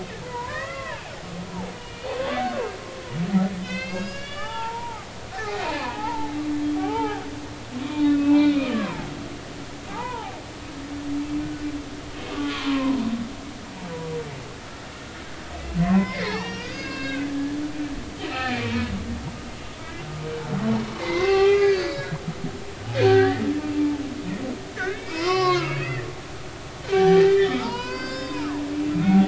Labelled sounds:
0.2	1.1	humpback whale, 0.80 to 2.1 kHz
1.8	2.3	humpback whale, 2.3 to 3.0 kHz
3.6	6.3	humpback whale, 0.80 to 7.3 kHz
6.7	7.2	humpback whale, 0.80 to 3.2 kHz
8.1	9.1	humpback whale, 0.80 to 2.7 kHz
9.9	10.4	humpback whale, 0.80 to 1.5 kHz
12.3	13.0	humpback whale, 0.93 to 1.5 kHz
15.8	17.3	humpback whale, 0.80 to 5.7 kHz
18.2	18.9	humpback whale, 0.90 to 4.2 kHz
20.9	22.1	humpback whale, 0.80 to 4.8 kHz
23.0	23.4	humpback whale, 1.4 to 2.1 kHz
24.8	28.7	humpback whale, 0.80 to 5.7 kHz

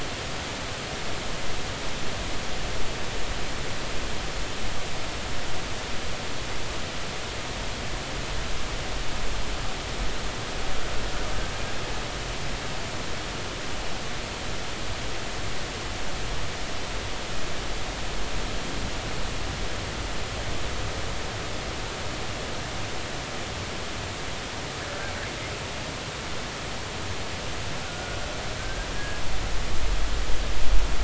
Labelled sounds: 27.8	28.2	killer whale, Bigg's (transient), 1.4 to 1.6 kHz
28.6	29.2	killer whale, Bigg's (transient), 1.5 to 1.7 kHz

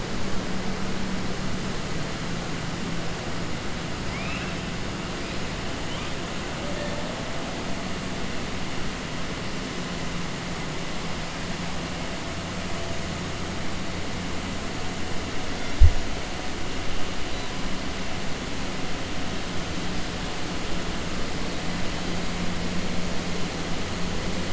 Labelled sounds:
4.0	4.5	killer whale, 1.3 to 3.7 kHz

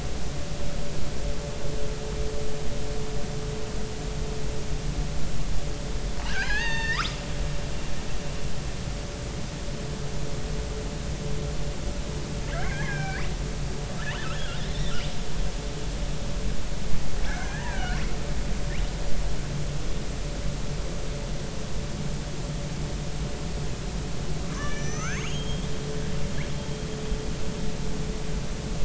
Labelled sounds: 6.3	7.0	killer whale, northern resident, R clan, call N33, 0.80 to 6.4 kHz
12.5	13.3	killer whale, northern resident, R clan, call N33, 1.3 to 3.3 kHz
14.3	14.6	killer whale, northern resident, R clan, call N33, 1.3 to 3.5 kHz
17.2	18.0	killer whale, northern resident, R clan, call N33, 1.4 to 3.1 kHz
24.5	25.7	killer whale, northern resident, R clan, call N32ii, 0.99 to 6.6 kHz

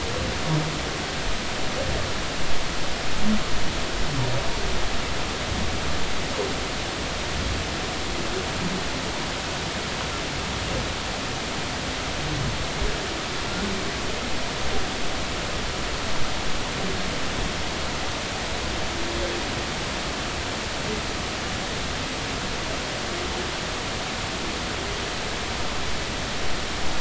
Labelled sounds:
13.5	13.7	humpback whale, 1.3 to 1.5 kHz

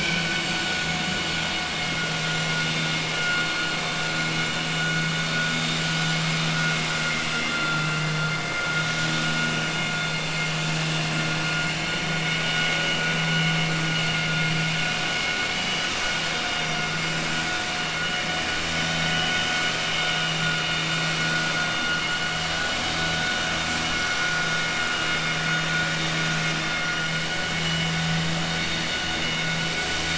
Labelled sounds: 7.0	8.1	vessel noise, 1.4 to 4.2 kHz

